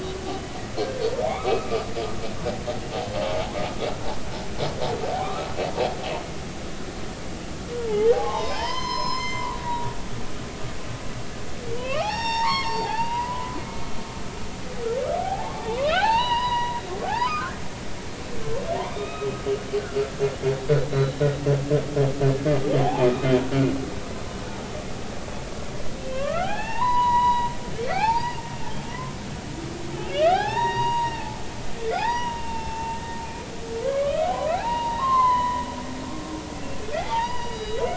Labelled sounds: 1.1	1.8	humpback whale, 0.80 to 1.3 kHz
5.2	5.5	humpback whale, 0.96 to 1.4 kHz
7.8	9.9	humpback whale, 0.80 to 7.4 kHz
11.8	13.6	humpback whale, 0.80 to 5.7 kHz
15.2	17.6	humpback whale, 0.80 to 5.1 kHz
18.8	19.3	humpback whale, 1.2 to 3.8 kHz
20.9	21.2	humpback whale, 3.8 to 4.0 kHz
22.8	23.7	humpback whale, 0.80 to 1.5 kHz
26.0	27.5	humpback whale, 0.80 to 4.1 kHz
27.8	28.4	humpback whale, 0.80 to 4.9 kHz
29.9	33.0	humpback whale, 0.80 to 6.7 kHz
33.8	35.7	humpback whale, 0.80 to 4.3 kHz
36.5	37.8	humpback whale, 0.80 to 5.0 kHz

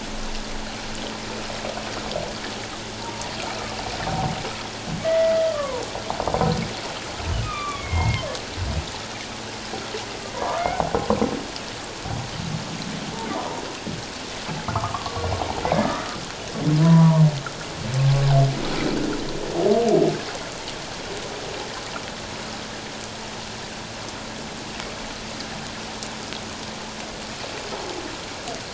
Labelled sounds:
3.0	3.3	humpback whale, 0.88 to 1.0 kHz
5.0	5.8	humpback whale, 0.88 to 2.1 kHz
7.4	8.3	humpback whale, 1.0 to 2.6 kHz
10.3	10.7	humpback whale, 0.91 to 1.2 kHz
13.4	13.6	humpback whale, 0.88 to 1.0 kHz
14.7	15.2	humpback whale, 0.94 to 1.5 kHz
16.8	17.2	humpback whale, 0.91 to 1.2 kHz

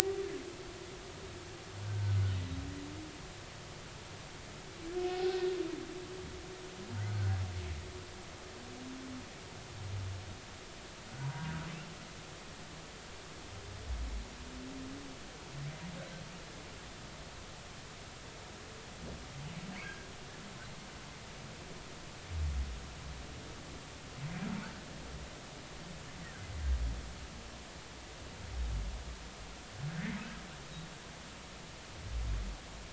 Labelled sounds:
1.9	2.2	humpback whale, 1.4 to 1.6 kHz
5.2	5.5	humpback whale, 1.4 to 1.6 kHz
7.0	7.3	humpback whale, 4.1 to 4.4 kHz
11.2	11.6	humpback whale, 0.90 to 1.6 kHz
19.8	20.1	humpback whale, 1.5 to 1.7 kHz

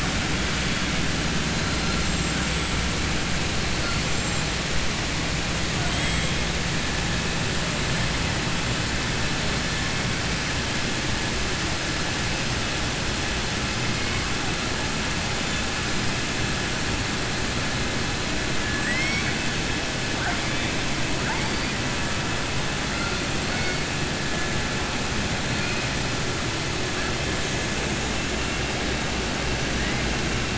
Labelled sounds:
5.7	6.4	killer whale, southern resident, 0.68 to 3.7 kHz
18.7	19.3	killer whale, southern resident, 1.2 to 5.6 kHz

